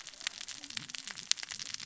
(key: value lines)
label: biophony, cascading saw
recorder: SoundTrap 600 or HydroMoth